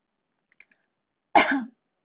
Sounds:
Cough